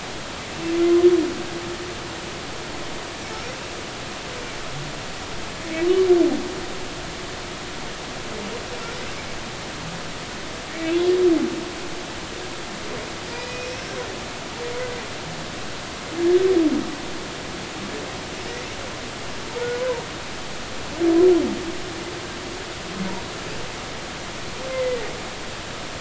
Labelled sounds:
13.3	13.8	humpback whale, 1.9 to 5.6 kHz
19.8	20.0	humpback whale, 0.86 to 1.1 kHz
24.7	25.0	humpback whale, 2.0 to 2.1 kHz

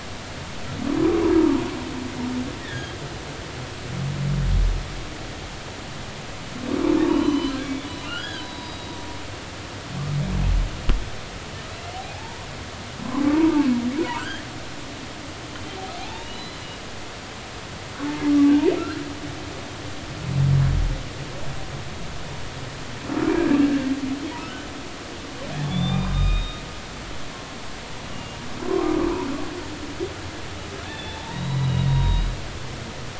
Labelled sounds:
2.6	2.9	humpback whale, 1.5 to 3.8 kHz
7.0	7.6	humpback whale, 0.86 to 4.4 kHz
8.1	9.0	humpback whale, 1.3 to 4.9 kHz
12.1	12.5	humpback whale, 0.80 to 1.2 kHz
14.0	14.4	humpback whale, 0.90 to 3.1 kHz
16.0	16.7	humpback whale, 0.80 to 4.1 kHz
18.8	19.0	humpback whale, 1.3 to 1.7 kHz
24.4	24.7	humpback whale, 1.2 to 1.6 kHz
25.7	26.6	humpback whale, 1.2 to 3.8 kHz
28.1	28.4	humpback whale, 2.8 to 2.9 kHz
30.8	32.3	humpback whale, 0.80 to 4.0 kHz

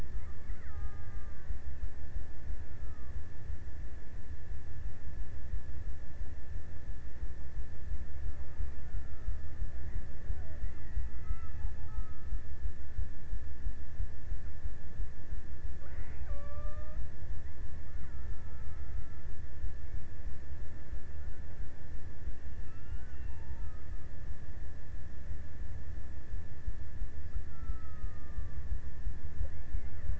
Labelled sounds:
0.0	2.0	killer whale, Bigg's (transient), 0.51 to 2.8 kHz
8.3	12.3	killer whale, Bigg's (transient), 0.46 to 2.6 kHz
15.8	17.6	killer whale, Bigg's (transient), 0.43 to 2.6 kHz
22.3	24.4	killer whale, Bigg's (transient), 0.72 to 2.0 kHz
26.7	29.4	killer whale, Bigg's (transient), 0.94 to 2.3 kHz

